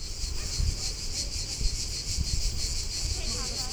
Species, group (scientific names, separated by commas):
Cicada orni, Cicadidae